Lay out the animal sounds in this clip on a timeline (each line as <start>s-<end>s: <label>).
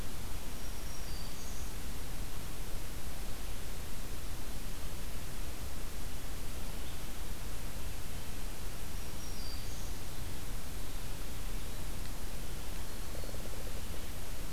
0.0s-2.1s: Black-throated Green Warbler (Setophaga virens)
8.5s-10.3s: Black-throated Green Warbler (Setophaga virens)
12.8s-13.4s: Black-throated Green Warbler (Setophaga virens)